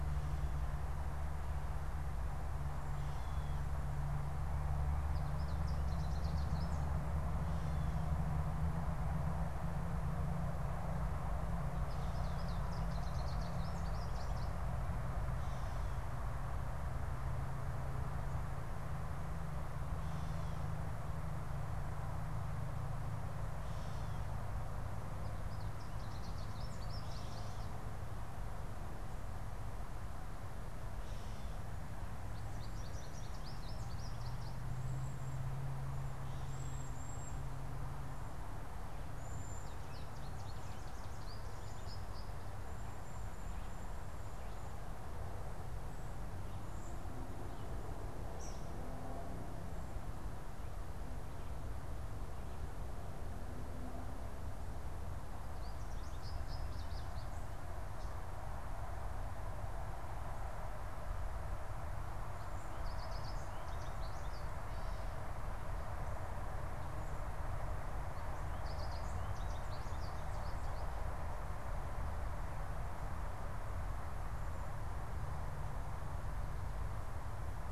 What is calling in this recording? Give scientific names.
Spinus tristis, Bombycilla cedrorum, Tyrannus tyrannus